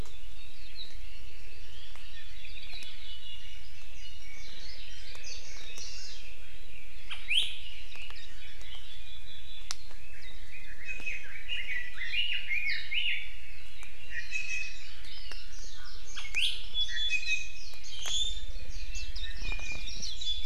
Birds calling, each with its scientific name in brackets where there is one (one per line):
Hawaii Amakihi (Chlorodrepanis virens)
Red-billed Leiothrix (Leiothrix lutea)
Warbling White-eye (Zosterops japonicus)
Iiwi (Drepanis coccinea)